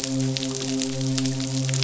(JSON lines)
{"label": "biophony, midshipman", "recorder": "SoundTrap 500"}